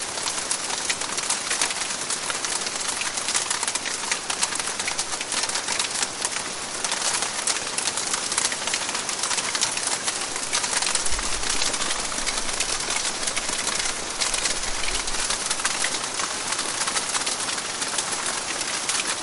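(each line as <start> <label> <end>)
0.0 Hail hitting surfaces during a hailstorm. 19.2
0.0 Heavy rain falls during a hailstorm. 19.2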